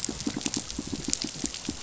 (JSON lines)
{"label": "biophony, pulse", "recorder": "SoundTrap 500"}